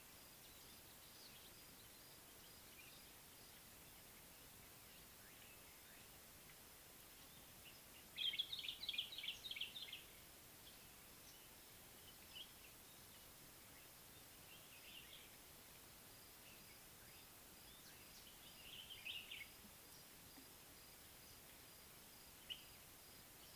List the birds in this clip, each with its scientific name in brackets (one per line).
Common Bulbul (Pycnonotus barbatus)